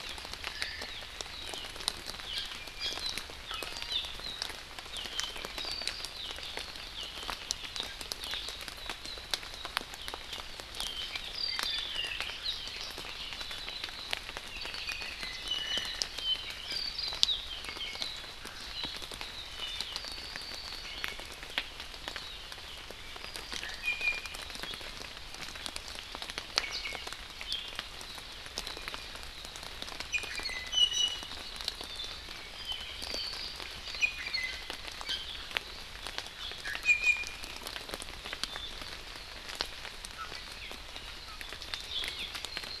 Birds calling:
Iiwi (Drepanis coccinea), Hawaii Amakihi (Chlorodrepanis virens), Apapane (Himatione sanguinea), Omao (Myadestes obscurus)

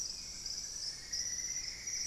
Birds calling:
Plumbeous Antbird (Myrmelastes hyperythrus), Hauxwell's Thrush (Turdus hauxwelli)

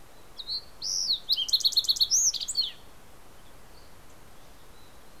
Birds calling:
Fox Sparrow (Passerella iliaca), Mountain Chickadee (Poecile gambeli)

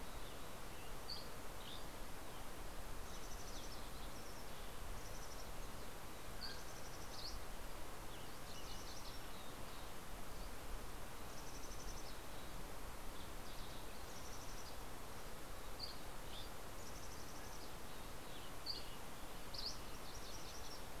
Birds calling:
Green-tailed Towhee (Pipilo chlorurus), Yellow-rumped Warbler (Setophaga coronata), Dusky Flycatcher (Empidonax oberholseri), Mountain Quail (Oreortyx pictus), Mountain Chickadee (Poecile gambeli), MacGillivray's Warbler (Geothlypis tolmiei)

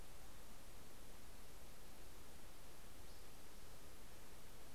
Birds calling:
Spotted Towhee (Pipilo maculatus)

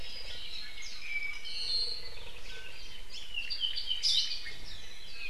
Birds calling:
Warbling White-eye (Zosterops japonicus), Hawaii Akepa (Loxops coccineus), Apapane (Himatione sanguinea)

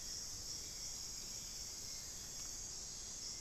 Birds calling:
Hauxwell's Thrush (Turdus hauxwelli)

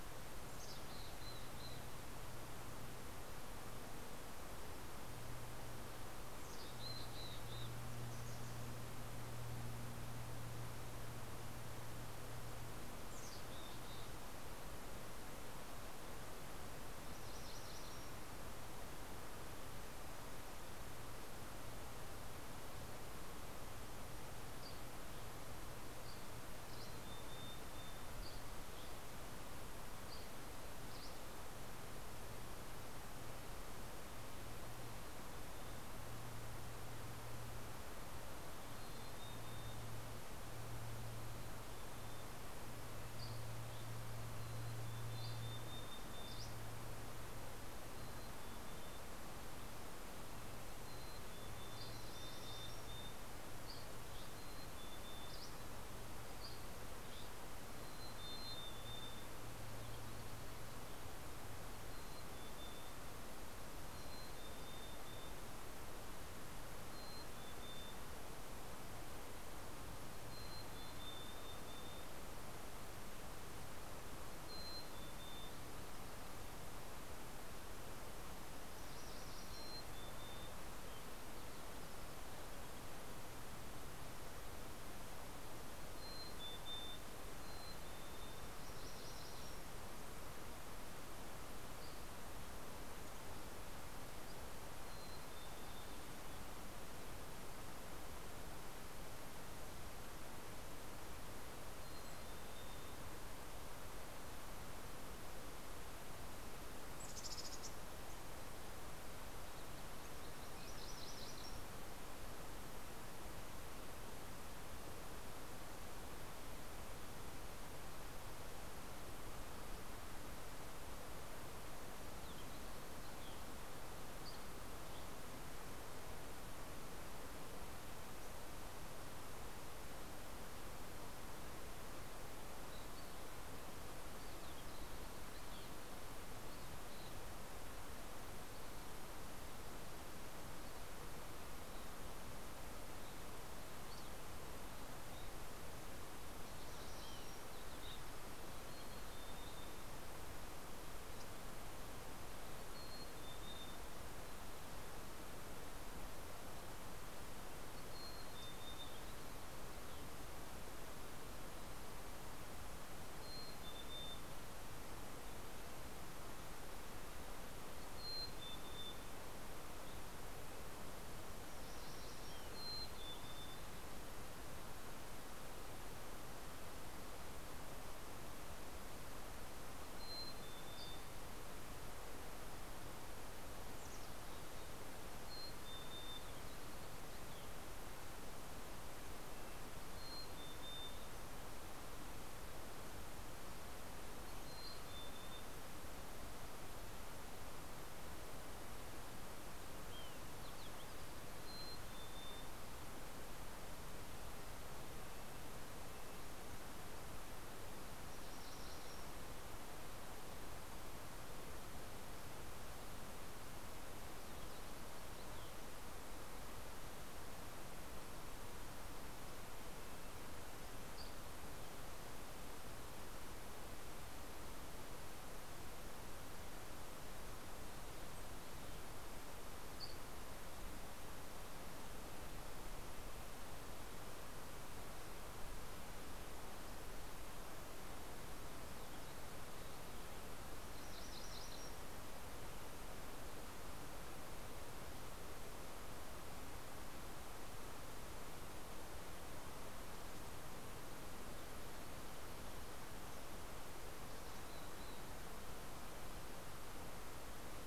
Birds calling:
MacGillivray's Warbler (Geothlypis tolmiei), Red-breasted Nuthatch (Sitta canadensis), Dusky Flycatcher (Empidonax oberholseri), Evening Grosbeak (Coccothraustes vespertinus), Mountain Chickadee (Poecile gambeli)

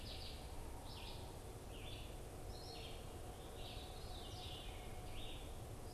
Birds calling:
Red-eyed Vireo (Vireo olivaceus), Veery (Catharus fuscescens)

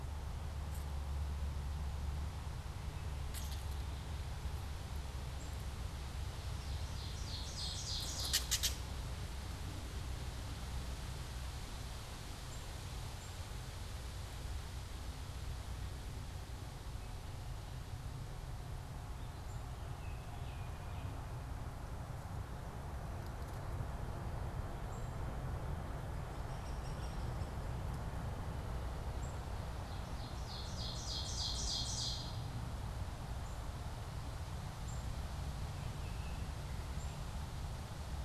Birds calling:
Ovenbird (Seiurus aurocapilla), unidentified bird, Gray Catbird (Dumetella carolinensis), Hairy Woodpecker (Dryobates villosus), Black-capped Chickadee (Poecile atricapillus)

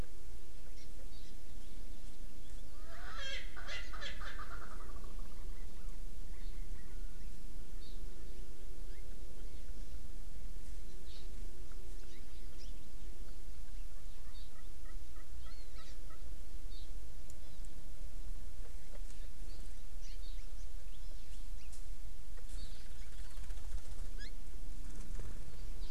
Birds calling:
Erckel's Francolin (Pternistis erckelii), Hawaii Amakihi (Chlorodrepanis virens)

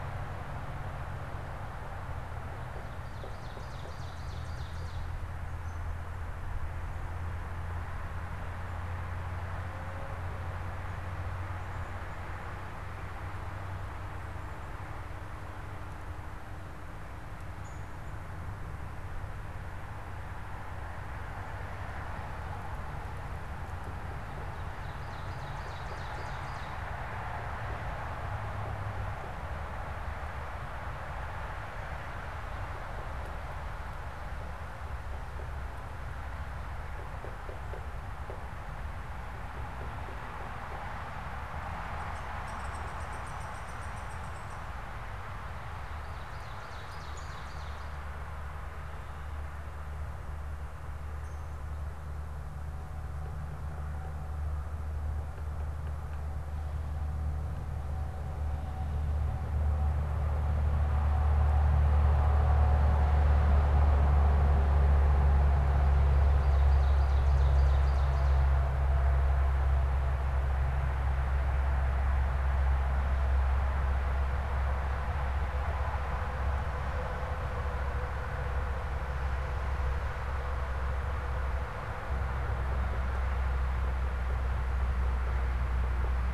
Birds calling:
unidentified bird, Ovenbird (Seiurus aurocapilla), Downy Woodpecker (Dryobates pubescens), Black-capped Chickadee (Poecile atricapillus)

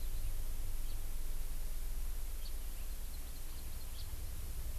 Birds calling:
Hawaii Amakihi (Chlorodrepanis virens), House Finch (Haemorhous mexicanus)

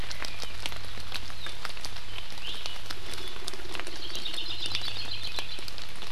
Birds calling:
Hawaii Creeper (Loxops mana), Iiwi (Drepanis coccinea)

